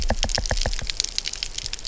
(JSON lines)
{"label": "biophony, knock", "recorder": "SoundTrap 300"}